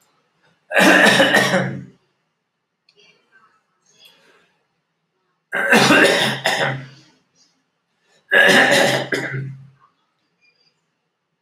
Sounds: Throat clearing